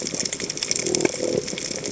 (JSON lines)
{"label": "biophony", "recorder": "HydroMoth"}